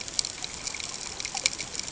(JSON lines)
{"label": "ambient", "recorder": "HydroMoth"}